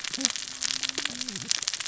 {"label": "biophony, cascading saw", "recorder": "SoundTrap 600 or HydroMoth"}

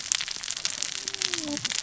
{"label": "biophony, cascading saw", "recorder": "SoundTrap 600 or HydroMoth"}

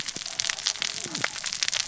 {"label": "biophony, cascading saw", "recorder": "SoundTrap 600 or HydroMoth"}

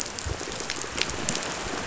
{"label": "biophony, chatter", "recorder": "SoundTrap 500"}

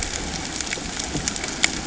{"label": "ambient", "recorder": "HydroMoth"}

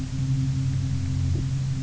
{"label": "anthrophony, boat engine", "recorder": "SoundTrap 300"}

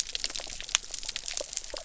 {"label": "biophony", "recorder": "SoundTrap 300"}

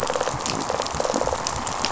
{"label": "biophony", "recorder": "SoundTrap 500"}
{"label": "biophony, rattle response", "recorder": "SoundTrap 500"}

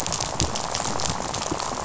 {"label": "biophony, rattle", "recorder": "SoundTrap 500"}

